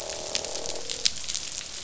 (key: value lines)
label: biophony, croak
recorder: SoundTrap 500